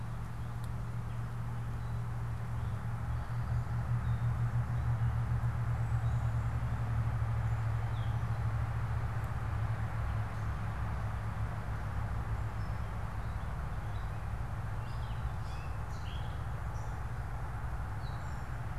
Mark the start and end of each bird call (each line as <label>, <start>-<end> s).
Gray Catbird (Dumetella carolinensis), 0.0-18.8 s